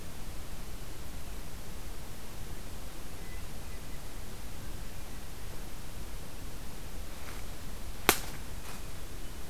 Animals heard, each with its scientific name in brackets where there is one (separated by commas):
Hermit Thrush (Catharus guttatus)